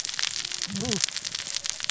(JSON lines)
{"label": "biophony, cascading saw", "recorder": "SoundTrap 600 or HydroMoth"}